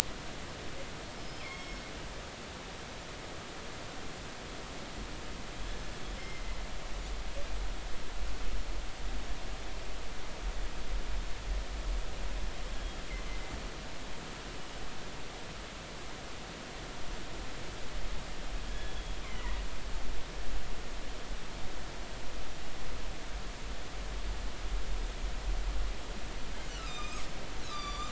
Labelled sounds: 1.2	1.8	killer whale, northern resident, G clan, 2.1 to 5.5 kHz
6.2	6.6	killer whale, northern resident, G clan, 2.0 to 2.2 kHz
18.7	19.6	killer whale, northern resident, G clan, 1.6 to 3.5 kHz
26.8	28.1	killer whale, northern resident, G clan, 1.1 to 7.3 kHz

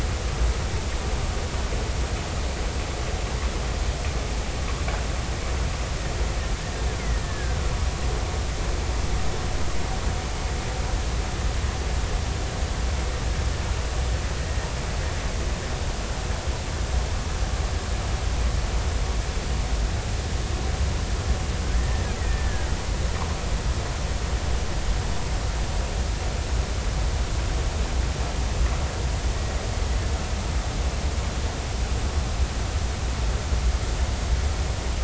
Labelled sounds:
7.2	7.6	killer whale, Bigg's (transient), 1.4 to 1.8 kHz
21.7	22.7	killer whale, Bigg's (transient), 1.5 to 2.1 kHz

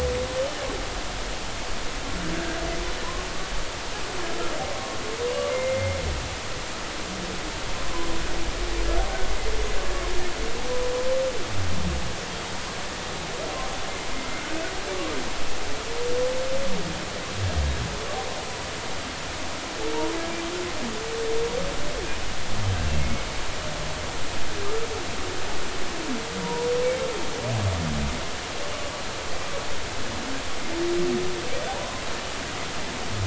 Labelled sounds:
5.5	6.0	humpback whale, 2.0 to 2.2 kHz
14.4	14.6	humpback whale, 1.4 to 1.6 kHz
26.4	26.7	humpback whale, 0.90 to 1.0 kHz

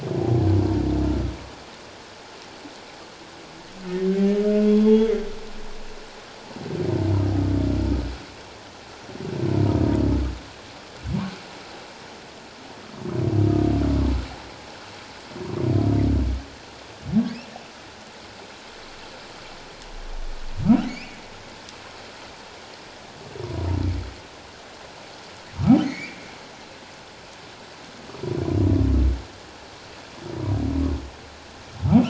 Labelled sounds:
4.7	5.1	humpback whale, 3.2 to 3.5 kHz
20.9	21.2	humpback whale, 2.2 to 5.5 kHz
25.8	26.2	humpback whale, 1.8 to 2.5 kHz

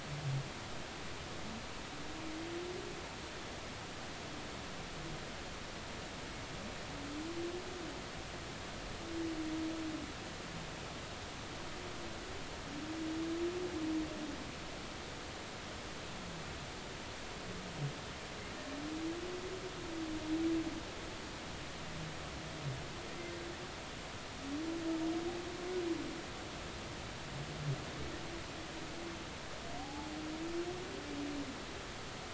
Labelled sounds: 29.8	30.1	humpback whale, 0.80 to 0.93 kHz

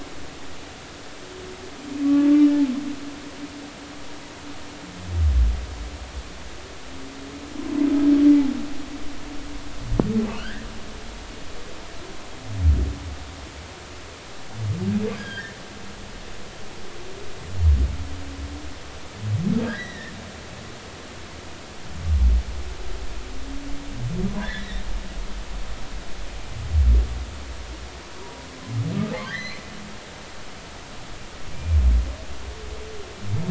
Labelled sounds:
10.4	10.7	humpback whale, 1.3 to 1.9 kHz
15.2	15.5	humpback whale, 1.5 to 3.3 kHz
19.6	20.1	humpback whale, 1.5 to 4.0 kHz
24.4	24.8	humpback whale, 1.5 to 3.9 kHz
28.2	28.4	humpback whale, 0.93 to 0.99 kHz
29.2	29.6	humpback whale, 1.5 to 4.3 kHz
31.5	31.8	humpback whale, 2.3 to 2.4 kHz

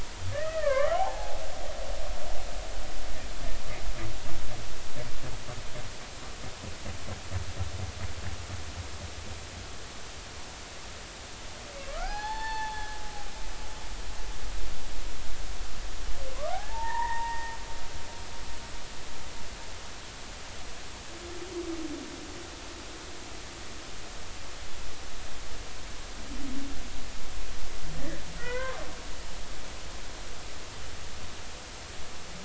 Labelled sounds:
0.3	1.4	humpback whale, 0.80 to 2.4 kHz
11.9	13.0	humpback whale, 0.80 to 4.5 kHz
16.3	17.6	humpback whale, 0.80 to 2.0 kHz
27.9	28.9	humpback whale, 0.93 to 2.1 kHz

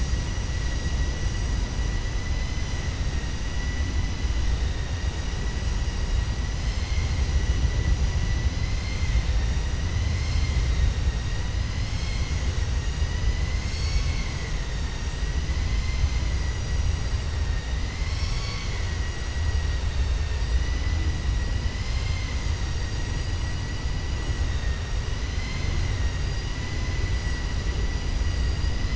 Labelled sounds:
8.6	9.6	vessel noise, 1.8 to 5.1 kHz

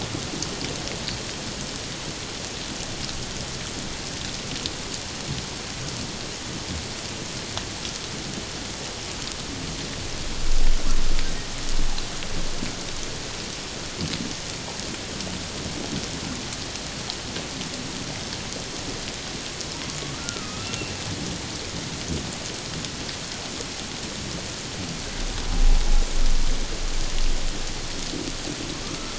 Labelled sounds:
20.2	20.9	humpback whale, 1.2 to 2.8 kHz

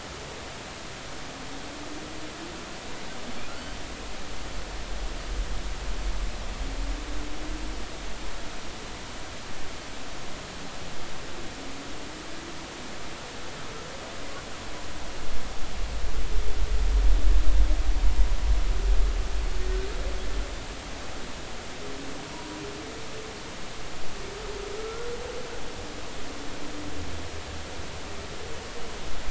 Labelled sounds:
22.3	22.6	humpback whale, 0.93 to 1.1 kHz
24.8	25.1	humpback whale, 1.3 to 1.5 kHz

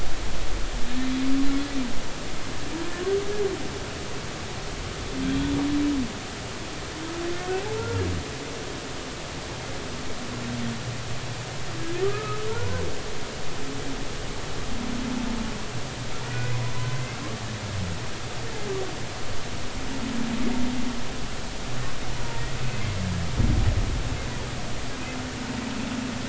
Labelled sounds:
7.3	8.0	humpback whale, 1.3 to 1.5 kHz
12.0	12.5	humpback whale, 1.1 to 1.4 kHz
16.3	17.2	humpback whale, 1.4 to 2.6 kHz
22.2	22.4	humpback whale, 0.86 to 0.99 kHz

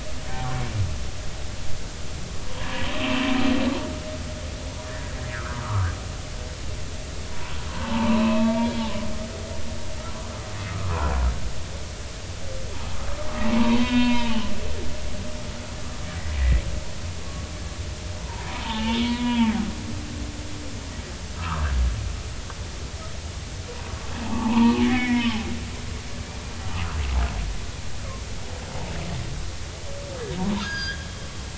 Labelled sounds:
2.6	2.8	humpback whale, 0.90 to 1.1 kHz
4.9	5.9	humpback whale, 0.90 to 2.0 kHz
7.3	8.9	humpback whale, 0.83 to 3.4 kHz
13.5	14.5	humpback whale, 0.83 to 3.8 kHz
18.2	19.5	humpback whale, 0.83 to 3.5 kHz
21.4	21.7	humpback whale, 0.86 to 1.4 kHz
24.3	25.3	humpback whale, 0.80 to 3.2 kHz
26.7	27.0	humpback whale, 1.2 to 1.5 kHz
30.4	31.1	humpback whale, 0.86 to 5.0 kHz

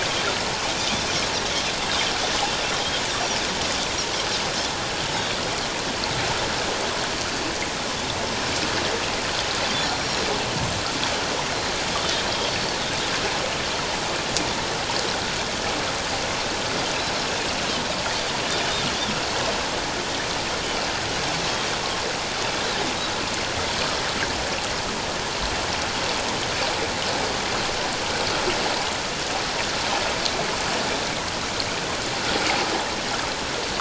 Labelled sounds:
9.8	10.3	Pacific white-sided dolphin, 4.1 to 5.7 kHz
12.5	12.7	Pacific white-sided dolphin, 4.4 to 4.5 kHz
21.8	22.1	Pacific white-sided dolphin, 0.97 to 1.2 kHz

